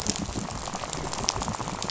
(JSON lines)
{"label": "biophony, rattle", "recorder": "SoundTrap 500"}